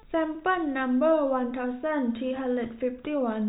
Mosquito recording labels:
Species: no mosquito; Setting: cup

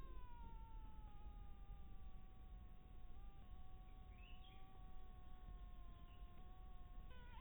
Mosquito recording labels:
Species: mosquito; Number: one; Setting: cup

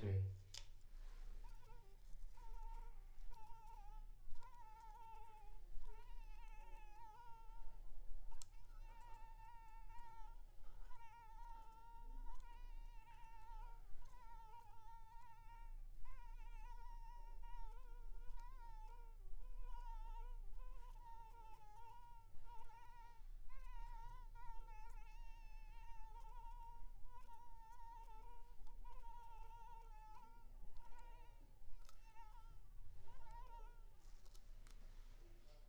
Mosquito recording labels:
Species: Anopheles arabiensis; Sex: female; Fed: unfed; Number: one; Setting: cup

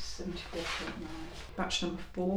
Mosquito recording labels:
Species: Culex quinquefasciatus; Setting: cup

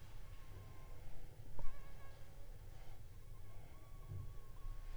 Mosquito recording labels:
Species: Anopheles funestus s.s.; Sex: female; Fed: unfed; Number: one; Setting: cup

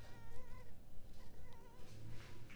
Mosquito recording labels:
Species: mosquito; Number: one; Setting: cup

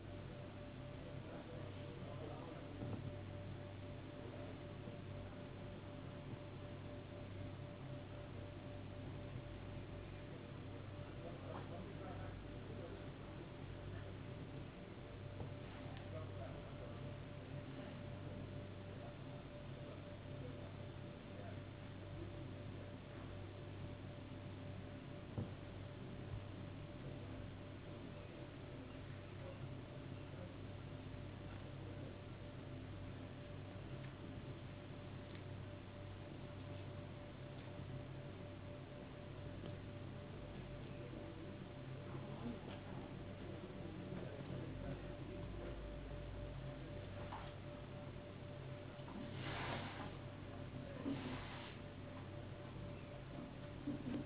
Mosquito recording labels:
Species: no mosquito; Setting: insect culture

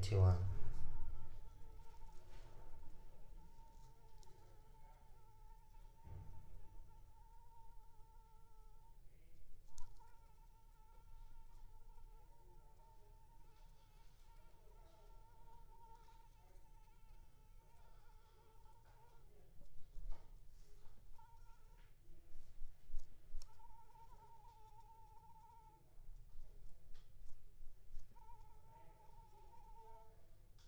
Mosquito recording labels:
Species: Anopheles squamosus; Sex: female; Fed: unfed; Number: one; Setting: cup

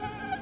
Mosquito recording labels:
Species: Aedes aegypti; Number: several; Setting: insect culture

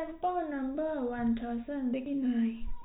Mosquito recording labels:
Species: no mosquito; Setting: cup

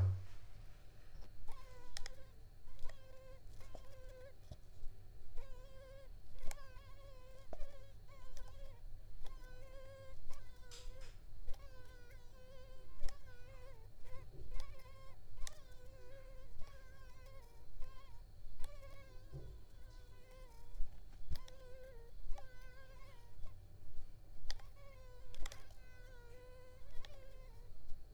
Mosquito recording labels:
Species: Culex pipiens complex; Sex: female; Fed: unfed; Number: one; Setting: cup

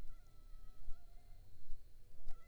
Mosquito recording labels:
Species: Anopheles arabiensis; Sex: female; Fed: unfed; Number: one; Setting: cup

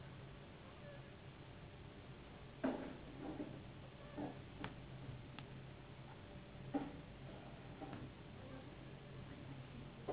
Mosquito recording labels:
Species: Anopheles gambiae s.s.; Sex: female; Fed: unfed; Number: one; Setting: insect culture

